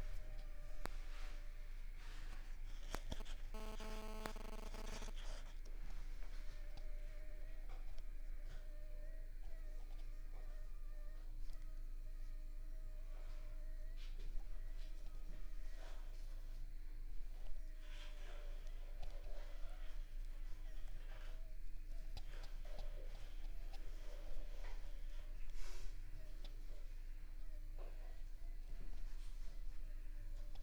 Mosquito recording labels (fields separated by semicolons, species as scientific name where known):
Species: Anopheles funestus s.s.; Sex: female; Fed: unfed; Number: one; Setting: cup